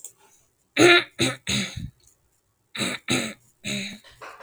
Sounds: Throat clearing